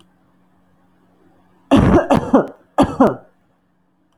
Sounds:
Cough